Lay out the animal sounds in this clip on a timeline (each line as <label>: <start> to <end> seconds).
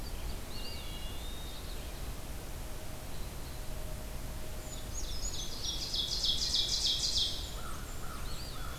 Red-eyed Vireo (Vireo olivaceus): 0.0 to 8.8 seconds
Eastern Wood-Pewee (Contopus virens): 0.2 to 2.1 seconds
Wood Thrush (Hylocichla mustelina): 0.5 to 1.2 seconds
Brown Creeper (Certhia americana): 4.5 to 5.9 seconds
Ovenbird (Seiurus aurocapilla): 4.7 to 7.8 seconds
Blackburnian Warbler (Setophaga fusca): 7.0 to 8.8 seconds
American Crow (Corvus brachyrhynchos): 7.4 to 8.8 seconds
Eastern Wood-Pewee (Contopus virens): 8.0 to 8.8 seconds